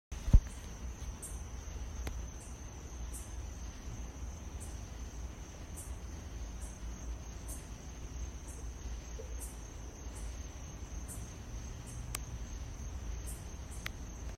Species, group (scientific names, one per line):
Microcentrum rhombifolium
Orthoptera